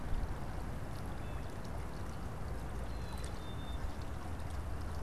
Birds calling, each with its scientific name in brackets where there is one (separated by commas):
Blue Jay (Cyanocitta cristata), Black-capped Chickadee (Poecile atricapillus)